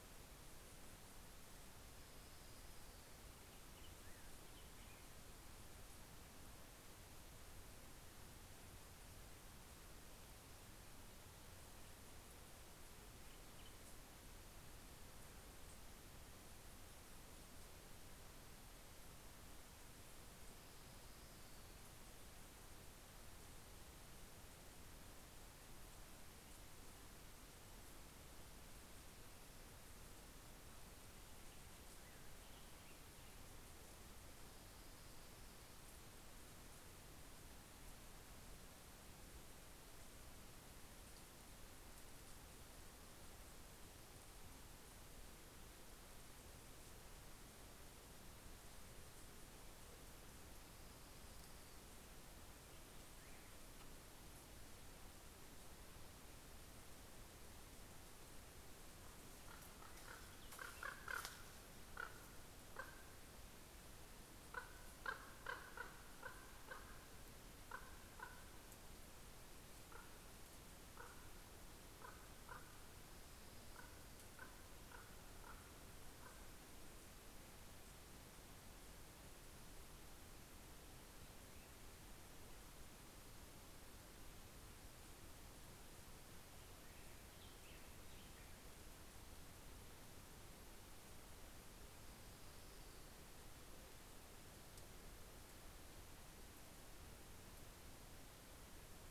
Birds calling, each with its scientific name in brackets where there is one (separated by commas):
Black-headed Grosbeak (Pheucticus melanocephalus), Orange-crowned Warbler (Leiothlypis celata), Common Raven (Corvus corax)